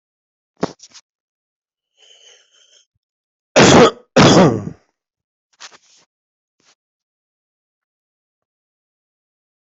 {"expert_labels": [{"quality": "poor", "cough_type": "unknown", "dyspnea": false, "wheezing": false, "stridor": false, "choking": false, "congestion": false, "nothing": true, "diagnosis": "lower respiratory tract infection", "severity": "unknown"}, {"quality": "poor", "cough_type": "unknown", "dyspnea": false, "wheezing": false, "stridor": true, "choking": false, "congestion": false, "nothing": false, "diagnosis": "obstructive lung disease", "severity": "unknown"}, {"quality": "good", "cough_type": "unknown", "dyspnea": false, "wheezing": false, "stridor": false, "choking": false, "congestion": false, "nothing": true, "diagnosis": "healthy cough", "severity": "pseudocough/healthy cough"}, {"quality": "ok", "cough_type": "wet", "dyspnea": false, "wheezing": false, "stridor": false, "choking": false, "congestion": true, "nothing": false, "diagnosis": "lower respiratory tract infection", "severity": "mild"}]}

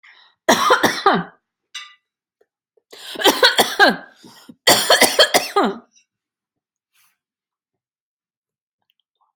{"expert_labels": [{"quality": "good", "cough_type": "dry", "dyspnea": false, "wheezing": false, "stridor": false, "choking": false, "congestion": false, "nothing": true, "diagnosis": "upper respiratory tract infection", "severity": "mild"}], "age": 52, "gender": "female", "respiratory_condition": false, "fever_muscle_pain": false, "status": "symptomatic"}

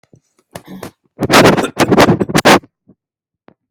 {"expert_labels": [{"quality": "poor", "cough_type": "unknown", "dyspnea": false, "wheezing": false, "stridor": false, "choking": false, "congestion": false, "nothing": false, "severity": "unknown"}], "age": 51, "gender": "male", "respiratory_condition": false, "fever_muscle_pain": false, "status": "healthy"}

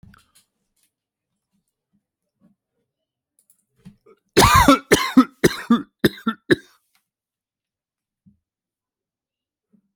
{"expert_labels": [{"quality": "good", "cough_type": "dry", "dyspnea": false, "wheezing": false, "stridor": false, "choking": false, "congestion": false, "nothing": true, "diagnosis": "upper respiratory tract infection", "severity": "mild"}], "age": 42, "gender": "male", "respiratory_condition": false, "fever_muscle_pain": false, "status": "healthy"}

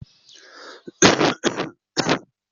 {"expert_labels": [{"quality": "ok", "cough_type": "unknown", "dyspnea": false, "wheezing": false, "stridor": false, "choking": false, "congestion": false, "nothing": false, "diagnosis": "COVID-19", "severity": "mild"}], "gender": "female", "respiratory_condition": false, "fever_muscle_pain": false, "status": "healthy"}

